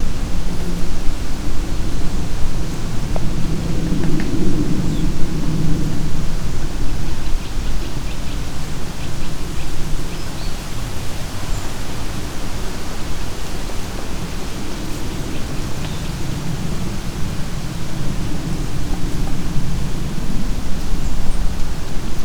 Are people speaking?
no